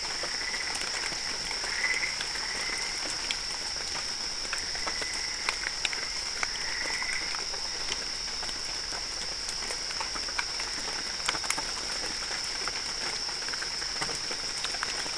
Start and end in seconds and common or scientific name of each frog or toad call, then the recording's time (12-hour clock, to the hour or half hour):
0.0	3.1	Boana albopunctata
4.5	7.4	Boana albopunctata
2:30am